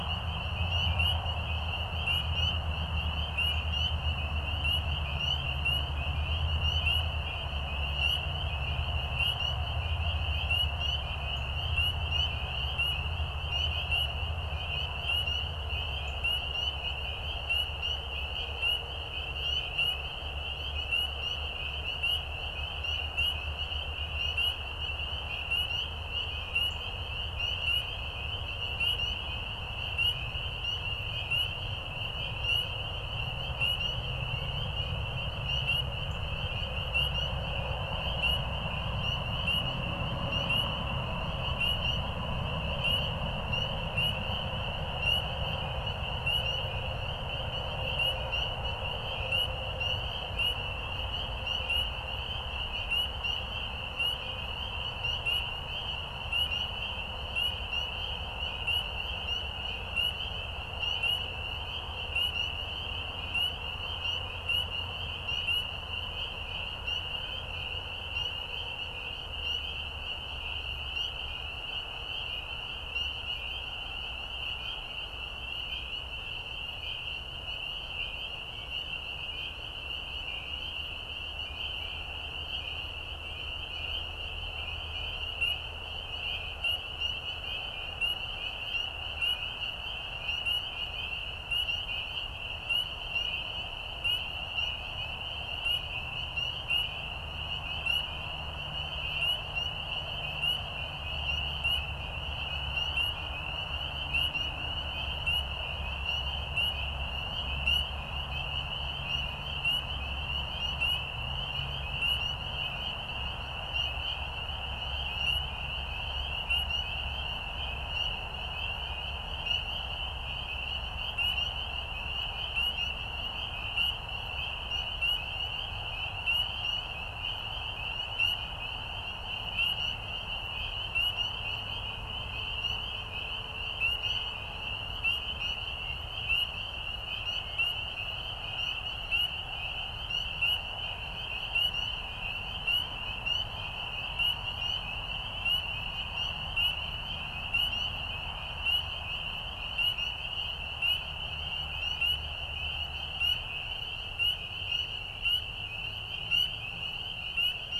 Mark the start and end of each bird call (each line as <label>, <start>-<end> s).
Northern Cardinal (Cardinalis cardinalis), 11.2-11.5 s
Northern Cardinal (Cardinalis cardinalis), 15.9-16.2 s
Northern Cardinal (Cardinalis cardinalis), 26.7-26.8 s